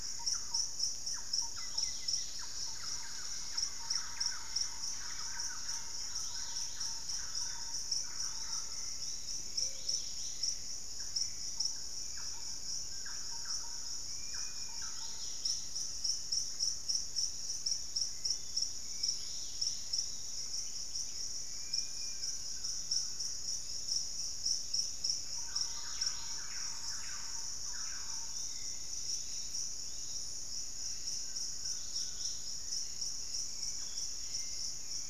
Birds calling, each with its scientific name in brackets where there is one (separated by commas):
Thrush-like Wren (Campylorhynchus turdinus), unidentified bird, Golden-crowned Spadebill (Platyrinchus coronatus), Dusky-capped Greenlet (Pachysylvia hypoxantha), White-throated Woodpecker (Piculus leucolaemus), Pygmy Antwren (Myrmotherula brachyura), Collared Trogon (Trogon collaris), Hauxwell's Thrush (Turdus hauxwelli), Dusky-capped Flycatcher (Myiarchus tuberculifer), Yellow-margined Flycatcher (Tolmomyias assimilis)